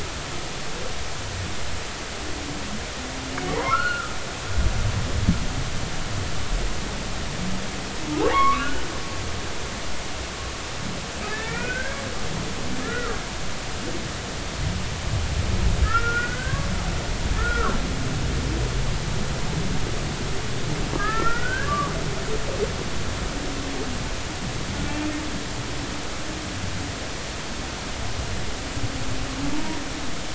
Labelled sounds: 3.5	4.1	humpback whale, 0.86 to 2.9 kHz
8.1	8.9	humpback whale, 0.80 to 3.0 kHz
11.2	12.0	humpback whale, 1.3 to 2.7 kHz
12.8	13.2	humpback whale, 1.1 to 1.5 kHz
15.8	16.6	humpback whale, 1.2 to 2.1 kHz
17.4	17.8	humpback whale, 1.0 to 1.5 kHz
20.9	21.9	humpback whale, 1.1 to 2.0 kHz
24.9	25.1	humpback whale, 2.3 to 2.6 kHz
29.5	29.8	humpback whale, 0.86 to 0.99 kHz

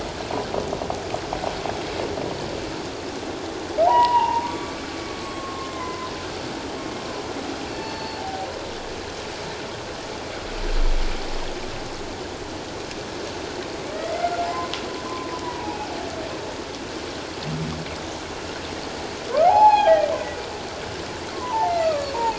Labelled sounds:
3.9	6.1	humpback whale, 0.78 to 7.8 kHz
7.7	8.5	humpback whale, 0.78 to 4.5 kHz
13.9	14.7	humpback whale, 0.78 to 2.2 kHz
15.4	15.9	humpback whale, 0.78 to 2.6 kHz
19.4	20.0	humpback whale, 0.78 to 2.6 kHz
21.3	22.3	humpback whale, 0.78 to 2.8 kHz

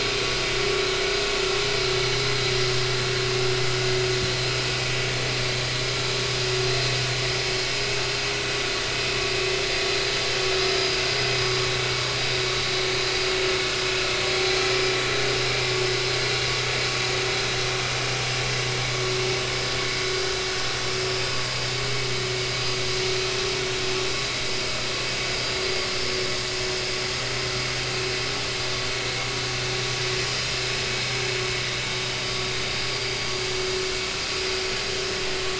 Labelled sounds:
21.2	21.6	vessel noise, 4.8 to 5.0 kHz

